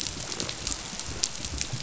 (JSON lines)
{"label": "biophony, chatter", "recorder": "SoundTrap 500"}